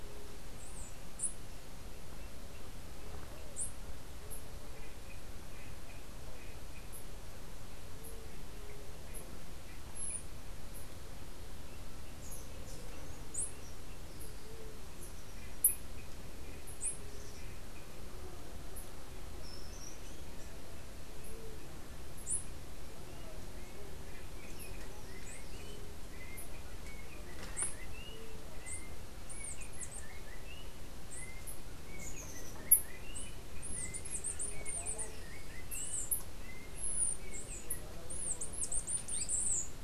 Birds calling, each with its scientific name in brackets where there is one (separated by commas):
Yellow-backed Oriole (Icterus chrysater), Chestnut-capped Brushfinch (Arremon brunneinucha)